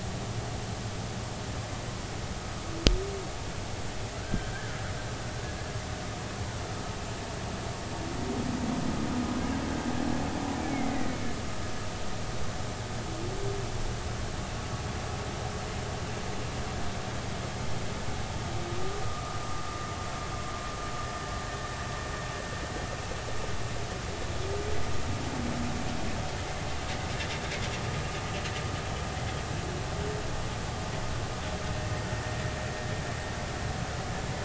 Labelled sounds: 4.2	4.8	humpback whale, 1.3 to 1.8 kHz
19.0	19.4	humpback whale, 1.2 to 1.3 kHz

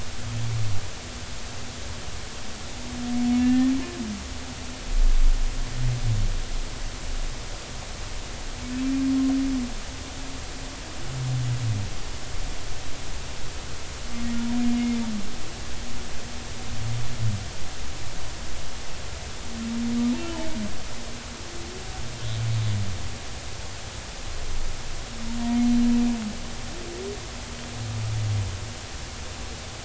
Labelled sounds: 3.4	3.7	humpback whale, 1.7 to 2.8 kHz
20.2	20.5	humpback whale, 2.9 to 3.1 kHz
25.6	25.8	humpback whale, 4.0 to 4.1 kHz

